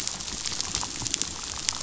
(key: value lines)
label: biophony, chatter
recorder: SoundTrap 500